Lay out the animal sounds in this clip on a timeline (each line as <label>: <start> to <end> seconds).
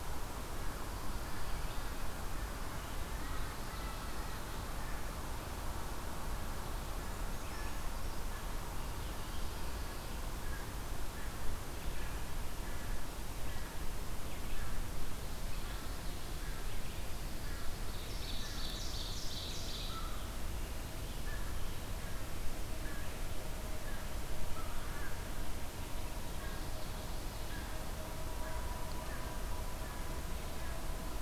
American Crow (Corvus brachyrhynchos): 0.4 to 31.2 seconds
Brown Creeper (Certhia americana): 7.0 to 8.4 seconds
Ovenbird (Seiurus aurocapilla): 17.5 to 20.2 seconds